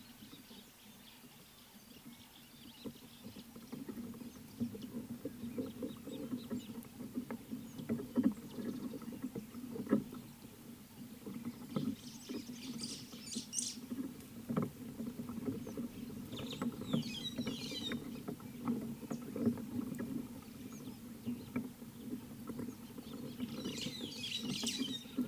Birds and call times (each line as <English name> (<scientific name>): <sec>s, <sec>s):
Scarlet-chested Sunbird (Chalcomitra senegalensis): 5.9s
White-browed Sparrow-Weaver (Plocepasser mahali): 13.4s
White-headed Buffalo-Weaver (Dinemellia dinemelli): 17.0s